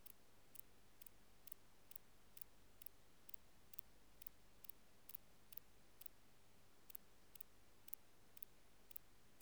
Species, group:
Antaxius spinibrachius, Orthoptera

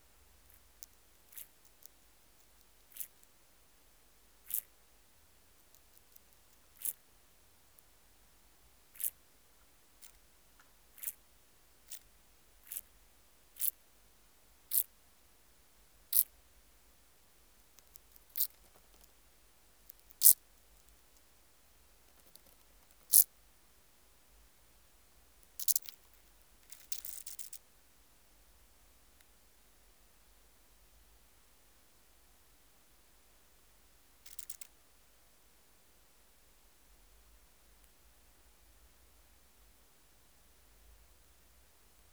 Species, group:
Chorthippus brunneus, Orthoptera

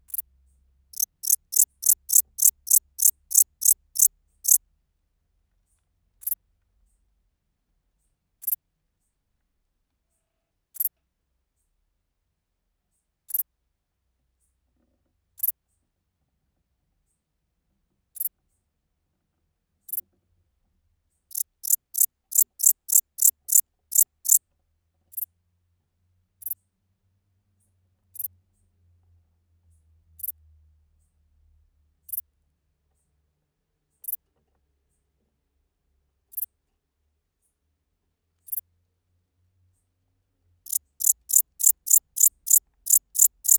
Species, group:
Pholidoptera fallax, Orthoptera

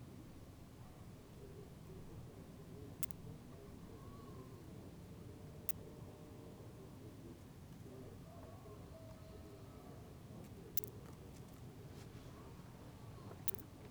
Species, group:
Poecilimon superbus, Orthoptera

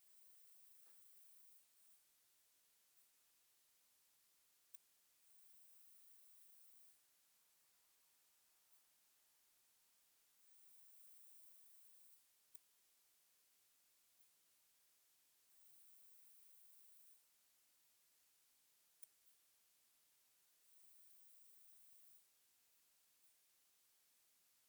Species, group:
Poecilimon jonicus, Orthoptera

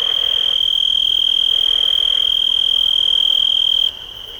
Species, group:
Oecanthus dulcisonans, Orthoptera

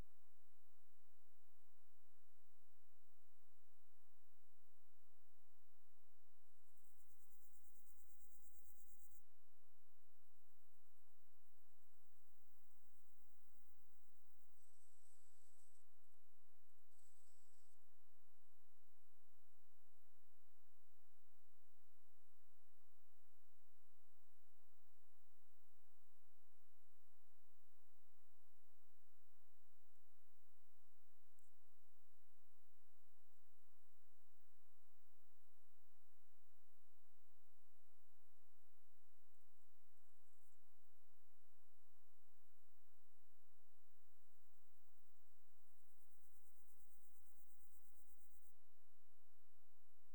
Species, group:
Chorthippus bornhalmi, Orthoptera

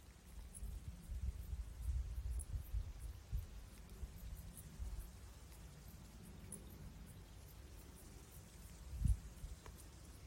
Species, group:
Pholidoptera griseoaptera, Orthoptera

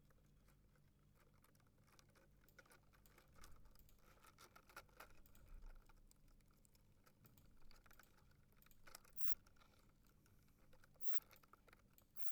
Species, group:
Poecilimon luschani, Orthoptera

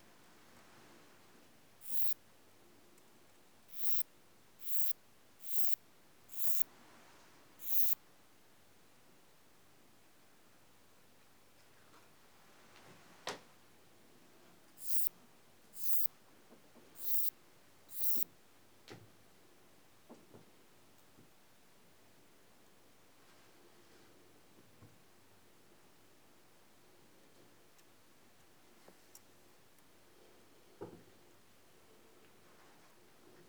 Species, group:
Antaxius kraussii, Orthoptera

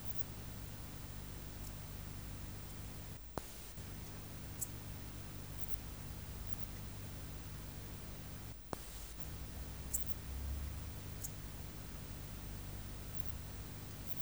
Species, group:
Incertana incerta, Orthoptera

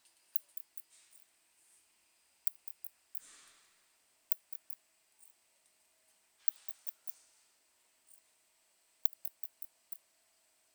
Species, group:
Leptophyes laticauda, Orthoptera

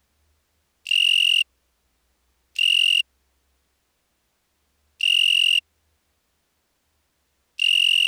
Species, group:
Oecanthus pellucens, Orthoptera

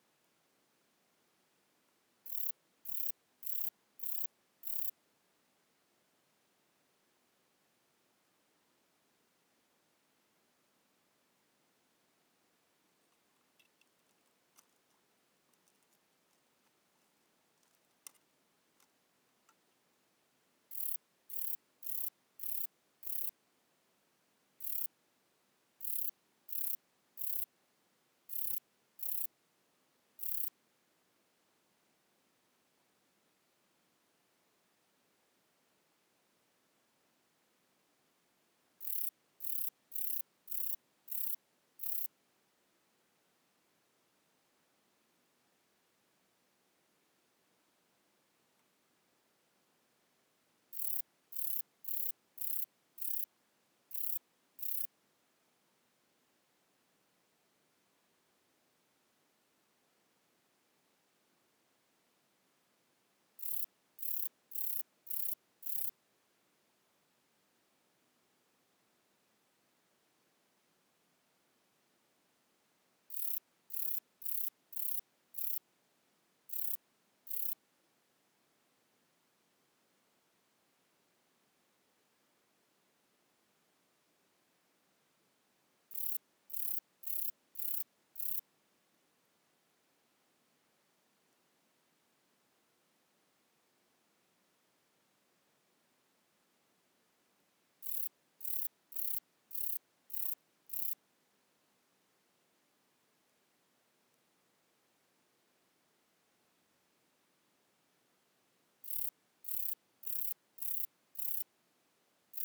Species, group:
Rhacocleis buchichii, Orthoptera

